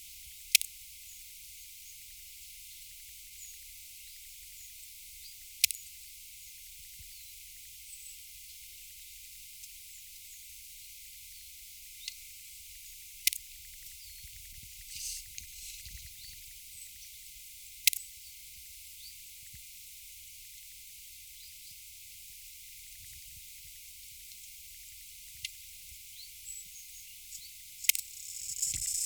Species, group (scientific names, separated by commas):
Poecilimon jonicus, Orthoptera